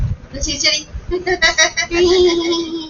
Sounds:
Laughter